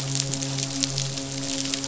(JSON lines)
{"label": "biophony, midshipman", "recorder": "SoundTrap 500"}